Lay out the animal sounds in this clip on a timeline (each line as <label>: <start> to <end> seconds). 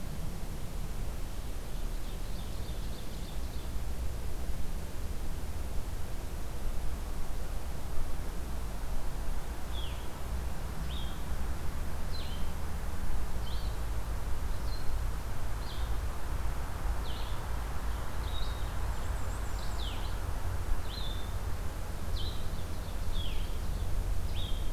Ovenbird (Seiurus aurocapilla): 1.7 to 3.9 seconds
Blue-headed Vireo (Vireo solitarius): 9.6 to 24.7 seconds
Black-and-white Warbler (Mniotilta varia): 18.7 to 20.0 seconds
Ovenbird (Seiurus aurocapilla): 22.4 to 23.9 seconds